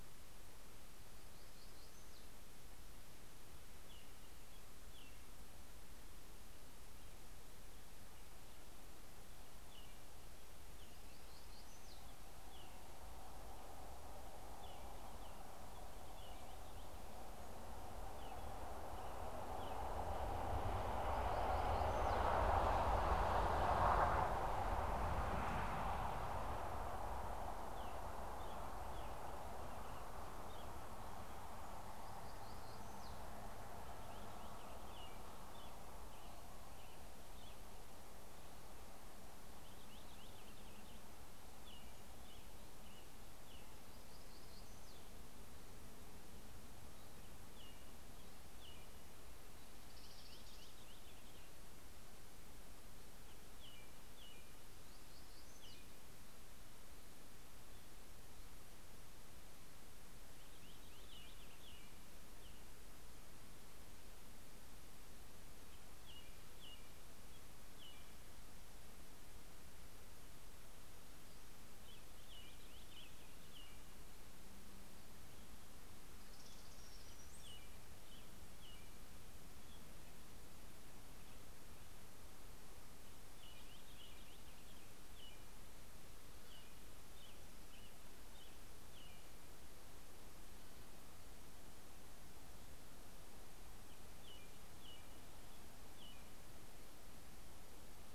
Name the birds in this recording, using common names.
Black-throated Gray Warbler, American Robin, Brown-headed Cowbird, Purple Finch